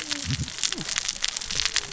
{"label": "biophony, cascading saw", "recorder": "SoundTrap 600 or HydroMoth"}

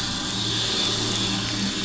{"label": "anthrophony, boat engine", "recorder": "SoundTrap 500"}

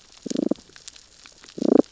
{"label": "biophony, damselfish", "recorder": "SoundTrap 600 or HydroMoth"}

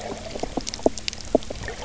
{"label": "biophony, knock croak", "recorder": "SoundTrap 300"}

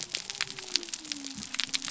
{"label": "biophony", "recorder": "SoundTrap 300"}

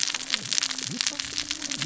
{"label": "biophony, cascading saw", "recorder": "SoundTrap 600 or HydroMoth"}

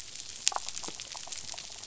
{"label": "biophony, damselfish", "recorder": "SoundTrap 500"}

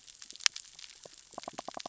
{"label": "biophony, knock", "recorder": "SoundTrap 600 or HydroMoth"}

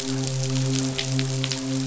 {"label": "biophony, midshipman", "recorder": "SoundTrap 500"}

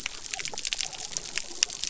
{"label": "biophony", "recorder": "SoundTrap 300"}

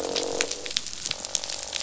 {"label": "biophony, croak", "recorder": "SoundTrap 500"}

